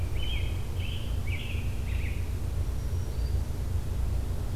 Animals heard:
Black-throated Green Warbler (Setophaga virens), American Robin (Turdus migratorius)

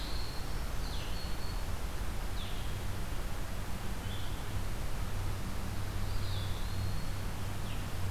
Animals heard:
Eastern Wood-Pewee (Contopus virens), Black-throated Green Warbler (Setophaga virens), Blue-headed Vireo (Vireo solitarius)

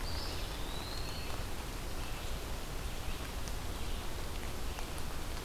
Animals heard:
Red-eyed Vireo (Vireo olivaceus), Eastern Wood-Pewee (Contopus virens)

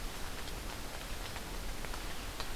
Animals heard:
Scarlet Tanager (Piranga olivacea)

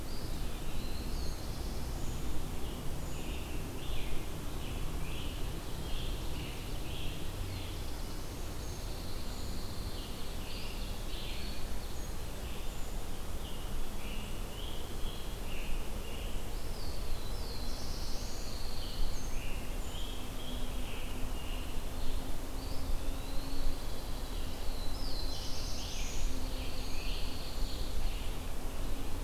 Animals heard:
Pine Warbler (Setophaga pinus), Brown Creeper (Certhia americana), Scarlet Tanager (Piranga olivacea), Eastern Wood-Pewee (Contopus virens), Ovenbird (Seiurus aurocapilla), Black-throated Blue Warbler (Setophaga caerulescens)

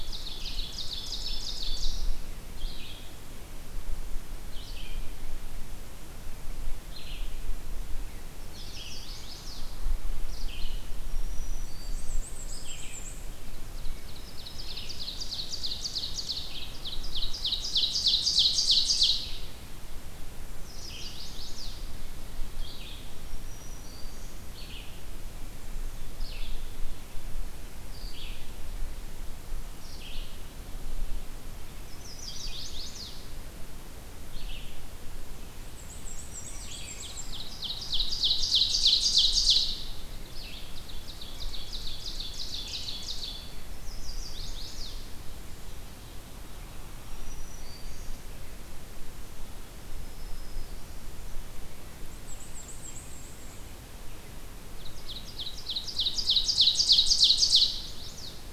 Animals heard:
Red-eyed Vireo (Vireo olivaceus), Black-throated Green Warbler (Setophaga virens), Black-and-white Warbler (Mniotilta varia), Chestnut-sided Warbler (Setophaga pensylvanica), Ovenbird (Seiurus aurocapilla)

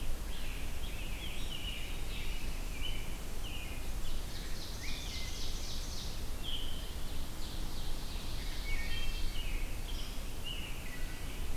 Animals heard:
Ovenbird (Seiurus aurocapilla), Wood Thrush (Hylocichla mustelina), Scarlet Tanager (Piranga olivacea), American Robin (Turdus migratorius)

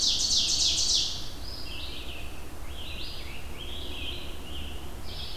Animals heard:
Scarlet Tanager (Piranga olivacea), Ovenbird (Seiurus aurocapilla), Red-eyed Vireo (Vireo olivaceus)

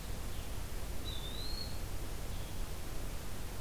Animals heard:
Blue-headed Vireo (Vireo solitarius), Eastern Wood-Pewee (Contopus virens)

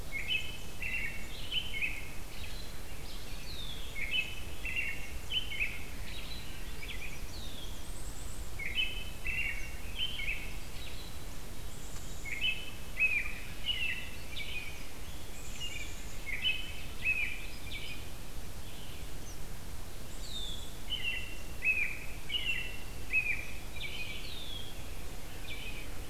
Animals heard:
Black-capped Chickadee (Poecile atricapillus), American Robin (Turdus migratorius), Red-winged Blackbird (Agelaius phoeniceus), Swainson's Thrush (Catharus ustulatus)

